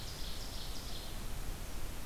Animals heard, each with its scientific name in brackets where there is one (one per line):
Ovenbird (Seiurus aurocapilla)